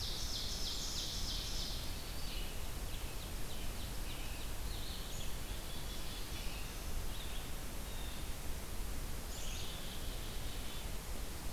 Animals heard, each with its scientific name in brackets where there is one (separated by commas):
Black-capped Chickadee (Poecile atricapillus), Ovenbird (Seiurus aurocapilla), Red-eyed Vireo (Vireo olivaceus), Blue Jay (Cyanocitta cristata)